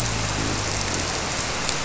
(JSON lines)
{"label": "biophony", "recorder": "SoundTrap 300"}